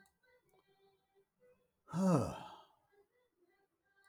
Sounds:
Sigh